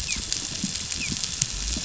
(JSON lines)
{"label": "biophony, dolphin", "recorder": "SoundTrap 500"}